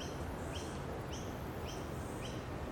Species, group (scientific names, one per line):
Yoyetta cumberlandi
Cicadidae